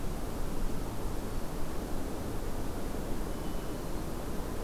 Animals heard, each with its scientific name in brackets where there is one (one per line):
Hermit Thrush (Catharus guttatus)